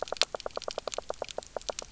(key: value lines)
label: biophony, knock croak
recorder: SoundTrap 300